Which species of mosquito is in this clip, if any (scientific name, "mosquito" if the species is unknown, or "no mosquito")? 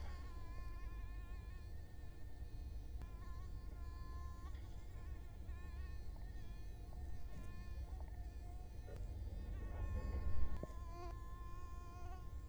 Culex quinquefasciatus